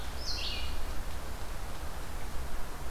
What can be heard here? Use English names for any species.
Red-eyed Vireo